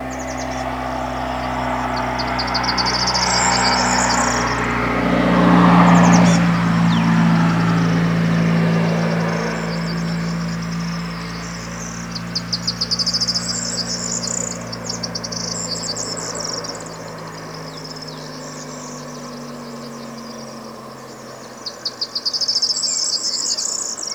Does the vehicle move away at the end?
yes